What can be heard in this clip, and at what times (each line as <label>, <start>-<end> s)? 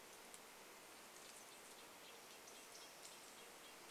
Red-breasted Nuthatch song, 0-4 s
unidentified bird chip note, 2-4 s